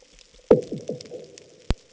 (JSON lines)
{"label": "anthrophony, bomb", "recorder": "HydroMoth"}